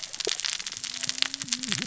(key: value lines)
label: biophony, cascading saw
recorder: SoundTrap 600 or HydroMoth